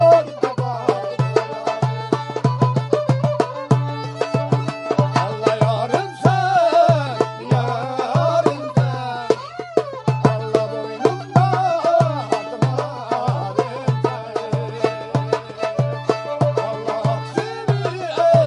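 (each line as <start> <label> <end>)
0.0 Rich traditional musical performance featuring darbuka percussion, a melodic string instrument, and human voice creating a layered and rhythmic soundscape repeatedly. 18.5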